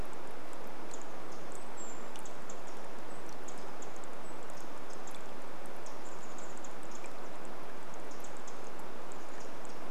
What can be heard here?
Brown Creeper call, Pacific Wren call, Chestnut-backed Chickadee call